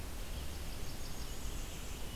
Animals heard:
Red-eyed Vireo (Vireo olivaceus), Blackburnian Warbler (Setophaga fusca)

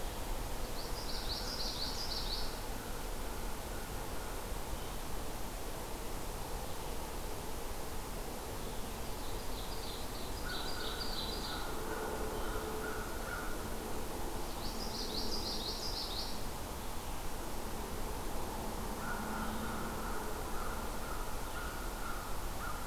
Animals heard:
Common Yellowthroat (Geothlypis trichas), Ovenbird (Seiurus aurocapilla), American Crow (Corvus brachyrhynchos)

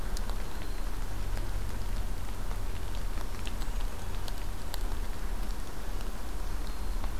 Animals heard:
Red-winged Blackbird (Agelaius phoeniceus), Hermit Thrush (Catharus guttatus)

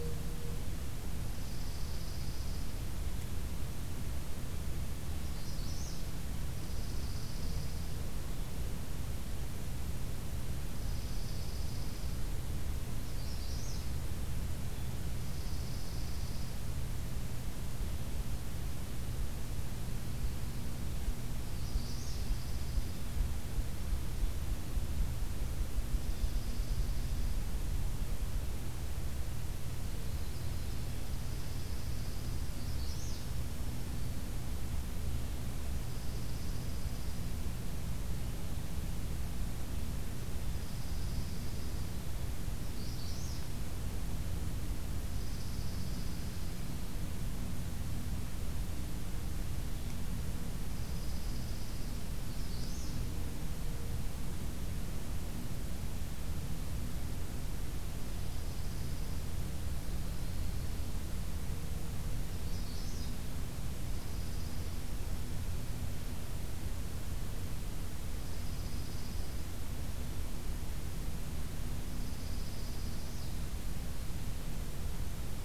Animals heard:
Dark-eyed Junco (Junco hyemalis), Magnolia Warbler (Setophaga magnolia), Yellow-rumped Warbler (Setophaga coronata), Black-throated Green Warbler (Setophaga virens)

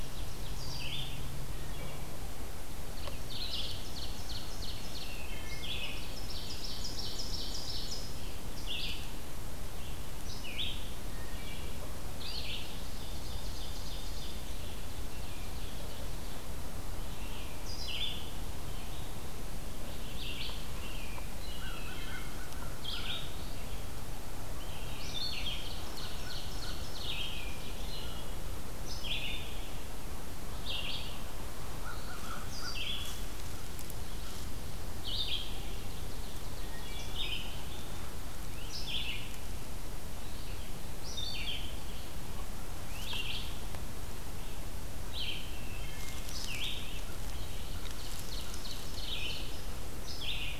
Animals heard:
Wood Thrush (Hylocichla mustelina), Ovenbird (Seiurus aurocapilla), American Crow (Corvus brachyrhynchos), Red-eyed Vireo (Vireo olivaceus)

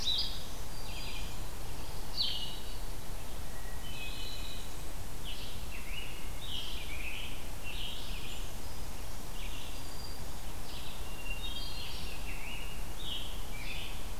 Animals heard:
Black-throated Green Warbler (Setophaga virens), Blackburnian Warbler (Setophaga fusca), Scarlet Tanager (Piranga olivacea), Red-eyed Vireo (Vireo olivaceus), Hermit Thrush (Catharus guttatus)

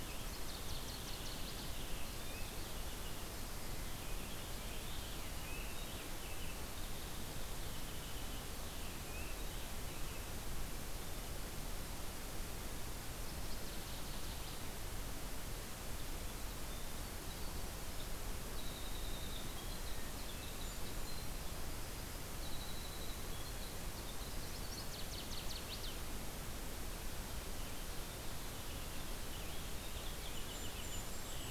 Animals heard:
Golden-crowned Kinglet (Regulus satrapa), Northern Waterthrush (Parkesia noveboracensis), Winter Wren (Troglodytes hiemalis), Purple Finch (Haemorhous purpureus)

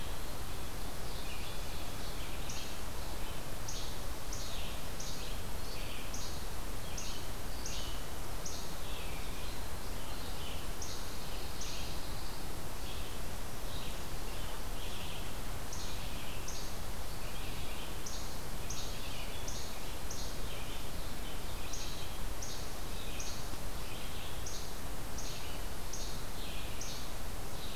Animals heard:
Least Flycatcher (Empidonax minimus), Red-eyed Vireo (Vireo olivaceus), Pine Warbler (Setophaga pinus), Ovenbird (Seiurus aurocapilla)

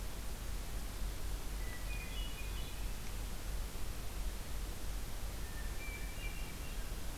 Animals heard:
Hermit Thrush (Catharus guttatus)

